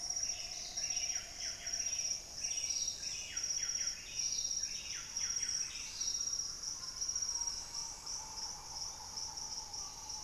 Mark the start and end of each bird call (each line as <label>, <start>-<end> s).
Buff-breasted Wren (Cantorchilus leucotis), 0.0-7.3 s
Green Ibis (Mesembrinibis cayennensis), 0.0-10.2 s
Piratic Flycatcher (Legatus leucophaius), 7.4-10.2 s
White-bellied Tody-Tyrant (Hemitriccus griseipectus), 8.6-9.3 s